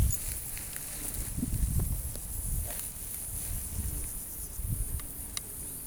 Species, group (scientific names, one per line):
Stenobothrus lineatus
Orthoptera